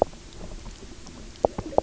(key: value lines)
label: biophony, knock croak
recorder: SoundTrap 300